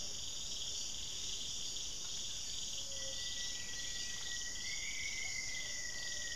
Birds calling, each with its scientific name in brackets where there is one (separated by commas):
Gilded Barbet (Capito auratus), Rufous-fronted Antthrush (Formicarius rufifrons), Gray-fronted Dove (Leptotila rufaxilla)